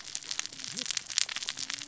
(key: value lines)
label: biophony, cascading saw
recorder: SoundTrap 600 or HydroMoth